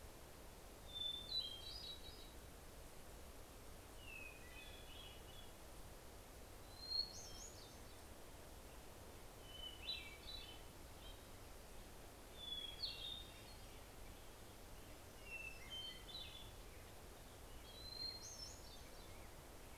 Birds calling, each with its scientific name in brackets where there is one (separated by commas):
Hermit Warbler (Setophaga occidentalis), Hermit Thrush (Catharus guttatus)